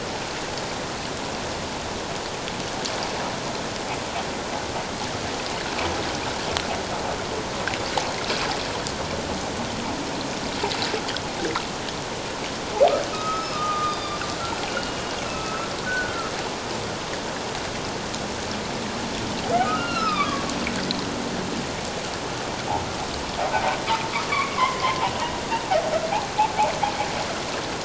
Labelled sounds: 13.1	14.2	humpback whale, 1.2 to 5.3 kHz
14.7	16.3	humpback whale, 1.2 to 2.9 kHz
19.6	20.5	humpback whale, 1.1 to 4.2 kHz
24.3	25.1	humpback whale, 0.78 to 2.4 kHz

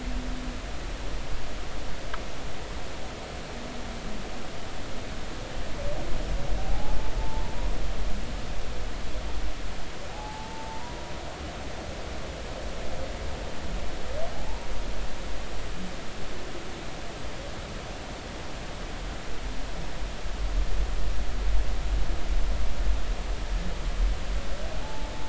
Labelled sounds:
6.6	7.4	humpback whale, 0.80 to 0.93 kHz
10.1	11.0	humpback whale, 0.80 to 1.0 kHz
14.4	14.7	humpback whale, 0.80 to 0.99 kHz
24.8	25.1	humpback whale, 0.80 to 0.93 kHz

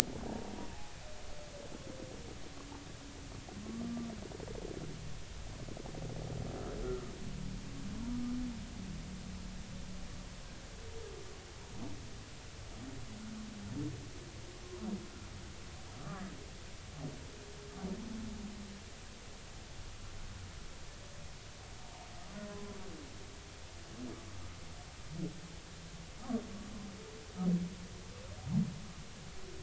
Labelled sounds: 22.4	22.8	humpback whale, 0.99 to 1.1 kHz

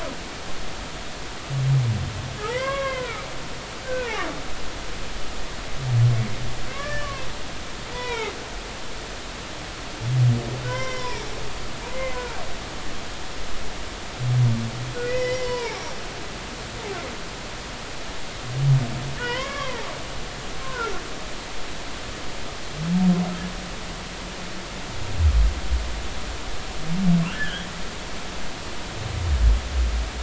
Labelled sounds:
2.5	3.2	humpback whale, 0.80 to 3.4 kHz
3.8	4.3	humpback whale, 1.4 to 2.6 kHz
6.7	7.3	humpback whale, 0.99 to 2.4 kHz
7.9	8.3	humpback whale, 0.80 to 4.0 kHz
10.6	11.3	humpback whale, 0.86 to 5.8 kHz
11.9	12.4	humpback whale, 0.80 to 2.2 kHz
15.0	15.9	humpback whale, 0.80 to 5.1 kHz
19.2	20.9	humpback whale, 0.80 to 3.3 kHz
27.3	27.7	humpback whale, 1.2 to 3.5 kHz

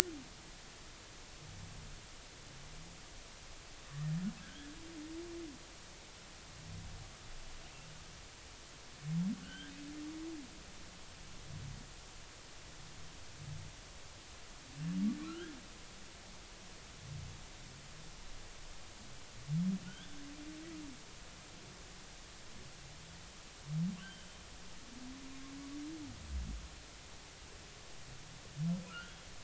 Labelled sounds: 4.4	4.7	humpback whale, 1.5 to 1.8 kHz
9.4	9.7	humpback whale, 1.4 to 3.4 kHz
15.2	15.6	humpback whale, 1.3 to 1.8 kHz
19.9	20.2	humpback whale, 2.9 to 3.6 kHz
24.0	24.3	humpback whale, 2.7 to 3.2 kHz
28.9	29.3	humpback whale, 1.2 to 3.4 kHz

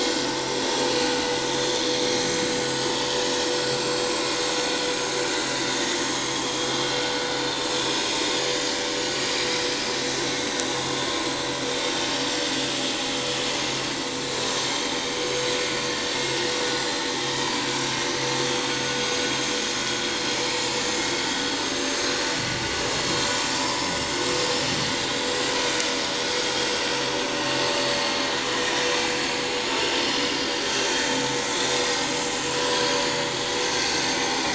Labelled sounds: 0.3	1.4	vessel noise, 7.4 to 8.0 kHz
3.8	4.1	vessel noise, 4.2 to 4.4 kHz
5.5	6.7	vessel noise, 3.1 to 3.8 kHz
8.1	8.4	vessel noise, 6.0 to 6.2 kHz
10.4	10.8	vessel noise, 5.8 to 6.1 kHz
12.2	12.5	vessel noise, 7.2 to 7.5 kHz
14.5	14.8	vessel noise, 7.3 to 7.5 kHz
18.0	18.2	vessel noise, 5.8 to 5.9 kHz
22.0	22.4	vessel noise, 5.7 to 6.7 kHz
23.6	24.2	vessel noise, 0.91 to 7.8 kHz
27.8	28.3	vessel noise, 4.2 to 4.6 kHz
29.2	31.0	vessel noise, 2.1 to 6.3 kHz
31.8	32.1	vessel noise, 4.8 to 5.2 kHz
32.6	33.8	vessel noise, 4.4 to 6.5 kHz

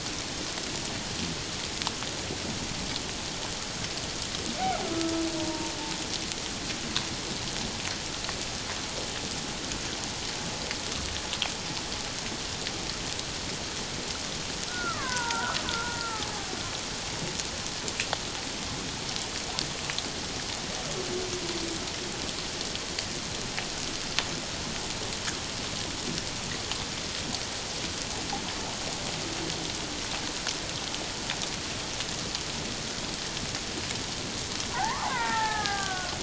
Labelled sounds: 5.4	5.7	killer whale, Bigg's (transient), 0.88 to 1.0 kHz
14.7	16.3	killer whale, Bigg's (transient), 0.88 to 1.8 kHz
34.7	36.2	killer whale, Bigg's (transient), 0.78 to 2.1 kHz

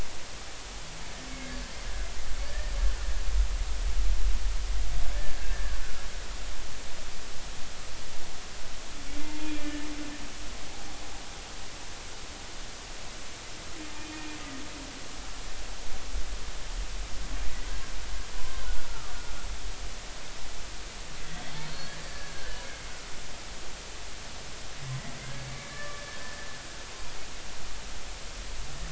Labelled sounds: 2.4	2.7	humpback whale, 1.7 to 1.9 kHz
5.2	5.8	humpback whale, 1.4 to 1.8 kHz
9.2	9.9	humpback whale, 0.86 to 3.4 kHz
13.9	14.2	humpback whale, 2.4 to 2.5 kHz
18.4	18.6	humpback whale, 0.96 to 1.1 kHz
18.9	19.2	humpback whale, 1.1 to 1.4 kHz
21.6	22.7	humpback whale, 1.5 to 4.7 kHz
25.4	26.2	humpback whale, 1.1 to 2.3 kHz

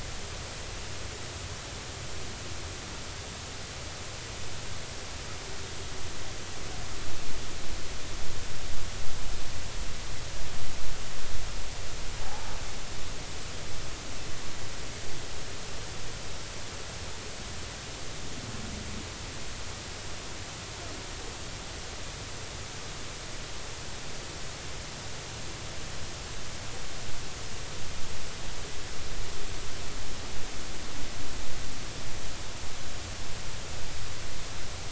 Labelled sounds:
12.2	12.5	humpback whale, 0.80 to 0.93 kHz

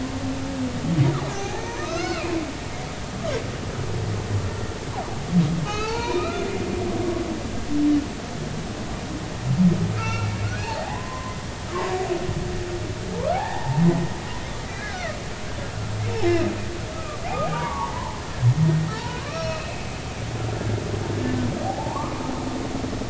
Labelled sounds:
1.3	2.3	humpback whale, 0.80 to 4.5 kHz
5.6	6.5	humpback whale, 0.83 to 3.1 kHz
10.0	11.4	humpback whale, 0.80 to 4.2 kHz
11.7	12.0	humpback whale, 0.86 to 1.2 kHz
13.1	13.8	humpback whale, 0.80 to 1.9 kHz
14.6	15.2	humpback whale, 1.2 to 2.1 kHz
16.3	17.2	humpback whale, 1.1 to 2.8 kHz
17.5	19.8	humpback whale, 0.80 to 5.6 kHz
21.6	22.2	humpback whale, 0.80 to 1.3 kHz

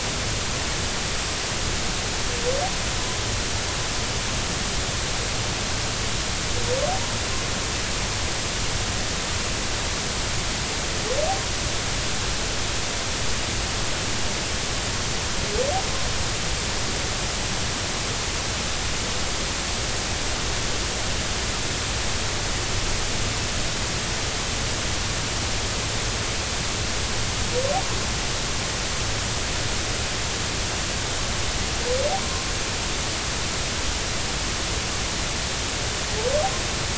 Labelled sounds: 32.2	32.4	humpback whale, 0.93 to 1.1 kHz

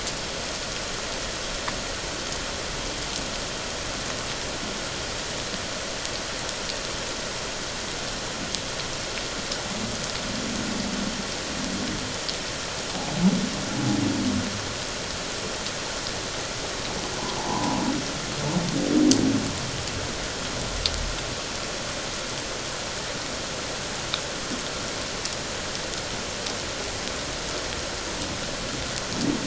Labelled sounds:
17.4	17.8	humpback whale, 0.78 to 1.1 kHz

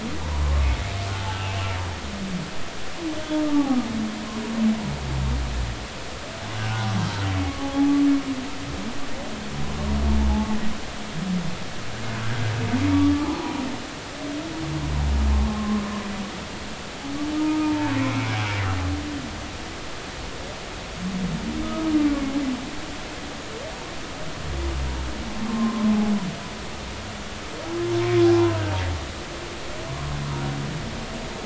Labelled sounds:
3.4	3.8	humpback whale, 1.1 to 1.2 kHz
6.7	6.9	humpback whale, 0.80 to 1.1 kHz
7.6	7.9	humpback whale, 0.80 to 0.90 kHz
10.3	10.6	humpback whale, 0.80 to 0.93 kHz
13.2	13.4	humpback whale, 0.80 to 1.1 kHz
15.3	15.8	humpback whale, 0.99 to 1.1 kHz
17.4	18.4	humpback whale, 0.86 to 2.4 kHz
25.5	25.9	humpback whale, 0.99 to 1.1 kHz

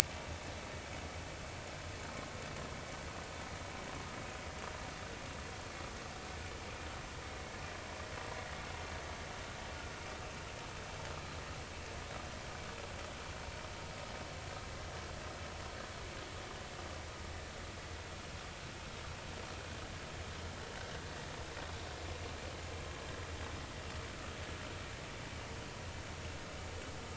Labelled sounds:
0.0	0.3	vessel noise, 2.1 to 2.4 kHz

